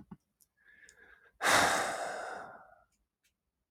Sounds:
Sigh